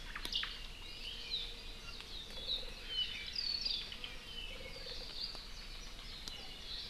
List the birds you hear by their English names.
Omao, Apapane